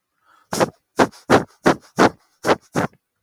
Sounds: Sniff